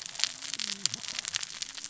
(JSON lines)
{"label": "biophony, cascading saw", "recorder": "SoundTrap 600 or HydroMoth"}